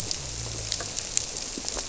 {"label": "biophony", "recorder": "SoundTrap 300"}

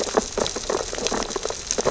{"label": "biophony, sea urchins (Echinidae)", "recorder": "SoundTrap 600 or HydroMoth"}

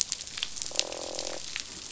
{"label": "biophony, croak", "recorder": "SoundTrap 500"}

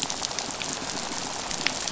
{"label": "biophony", "recorder": "SoundTrap 500"}
{"label": "biophony, rattle", "recorder": "SoundTrap 500"}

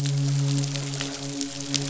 {"label": "biophony, midshipman", "recorder": "SoundTrap 500"}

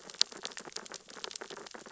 {"label": "biophony, sea urchins (Echinidae)", "recorder": "SoundTrap 600 or HydroMoth"}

